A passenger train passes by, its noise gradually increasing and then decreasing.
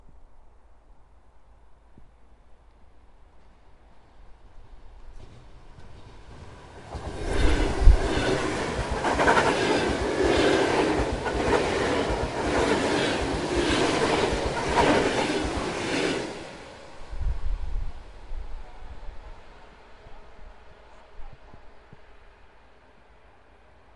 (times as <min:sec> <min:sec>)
0:04.4 0:21.5